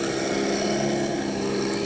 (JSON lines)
{"label": "anthrophony, boat engine", "recorder": "HydroMoth"}